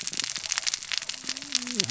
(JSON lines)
{"label": "biophony, cascading saw", "recorder": "SoundTrap 600 or HydroMoth"}